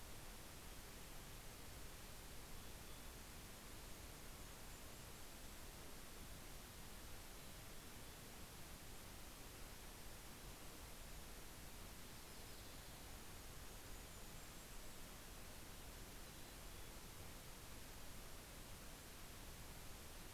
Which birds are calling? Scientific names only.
Poecile gambeli, Regulus satrapa, Setophaga coronata